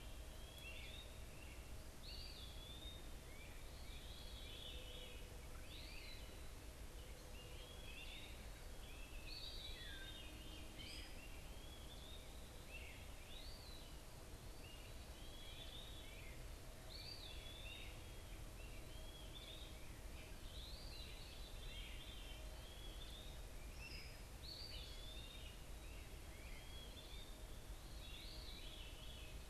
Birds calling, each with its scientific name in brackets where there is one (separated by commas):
Veery (Catharus fuscescens), Eastern Wood-Pewee (Contopus virens), Great Crested Flycatcher (Myiarchus crinitus)